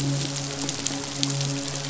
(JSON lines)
{"label": "biophony, midshipman", "recorder": "SoundTrap 500"}